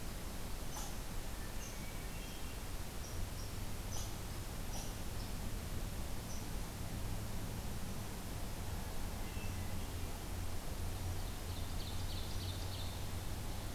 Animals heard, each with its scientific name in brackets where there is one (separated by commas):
Ovenbird (Seiurus aurocapilla), Red Squirrel (Tamiasciurus hudsonicus), Hermit Thrush (Catharus guttatus)